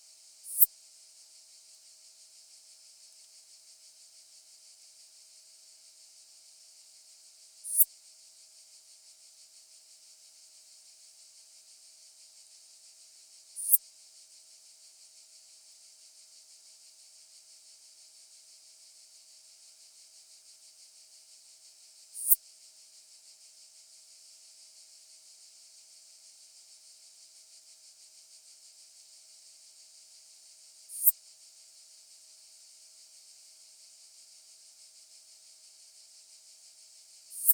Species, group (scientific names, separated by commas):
Poecilimon affinis, Orthoptera